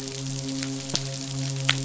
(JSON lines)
{"label": "biophony, midshipman", "recorder": "SoundTrap 500"}